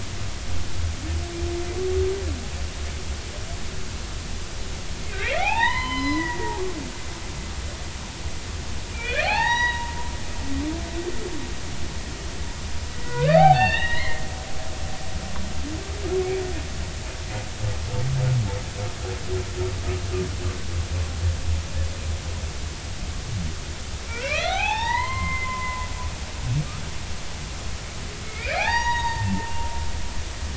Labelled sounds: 5.2	6.5	humpback whale, 0.80 to 5.2 kHz
8.9	9.9	humpback whale, 0.80 to 5.9 kHz
12.9	14.2	humpback whale, 0.80 to 4.6 kHz
24.1	25.9	humpback whale, 0.80 to 6.7 kHz
28.2	29.5	humpback whale, 0.80 to 6.7 kHz

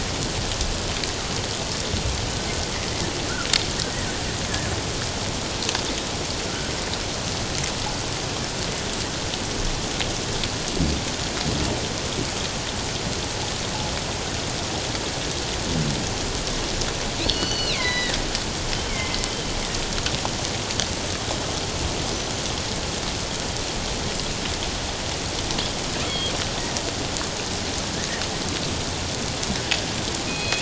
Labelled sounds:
17.2	18.2	killer whale, northern resident, G clan, 1.7 to 6.0 kHz
18.9	19.6	killer whale, northern resident, G clan, 2.0 to 3.2 kHz
26.1	26.3	killer whale, northern resident, G clan, 3.1 to 3.4 kHz
30.3	30.6	killer whale, northern resident, G clan, 2.4 to 4.2 kHz

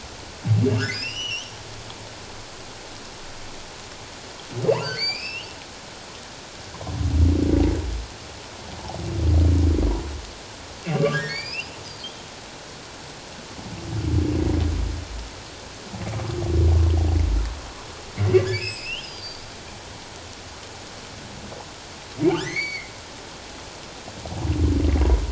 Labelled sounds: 0.9	1.5	humpback whale, 2.4 to 6.2 kHz
4.7	5.5	humpback whale, 1.3 to 5.7 kHz
10.8	11.8	humpback whale, 1.4 to 5.6 kHz
18.6	19.4	humpback whale, 2.3 to 5.6 kHz
22.3	22.9	humpback whale, 1.1 to 4.7 kHz

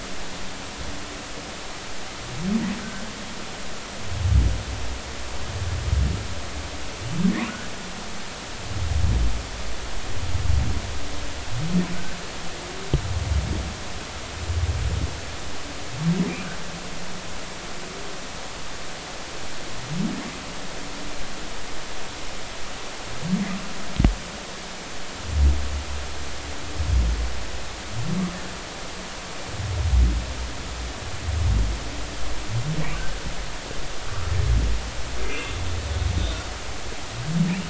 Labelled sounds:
16.3	16.5	humpback whale, 2.3 to 2.7 kHz
34.1	34.3	humpback whale, 1.1 to 1.4 kHz
35.2	35.5	humpback whale, 2.0 to 2.9 kHz

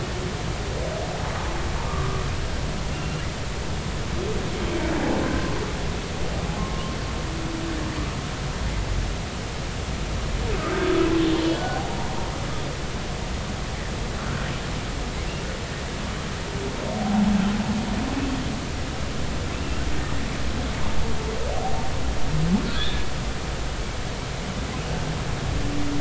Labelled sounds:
1.8	3.3	humpback whale, 1.1 to 3.0 kHz
6.6	7.0	humpback whale, 1.0 to 1.1 kHz
11.5	12.0	humpback whale, 0.80 to 1.5 kHz
17.0	17.3	humpback whale, 0.80 to 0.96 kHz
19.5	19.8	humpback whale, 2.5 to 2.8 kHz
22.7	23.1	humpback whale, 1.5 to 1.8 kHz

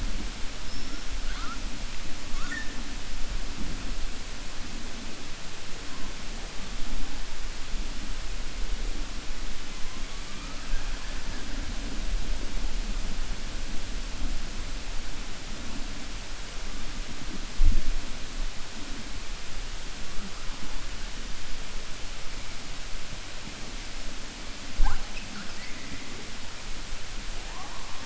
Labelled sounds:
10.3	11.5	killer whale, 0.84 to 2.6 kHz

